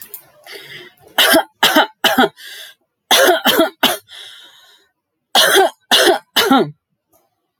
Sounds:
Cough